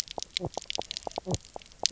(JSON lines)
{"label": "biophony, knock croak", "recorder": "SoundTrap 300"}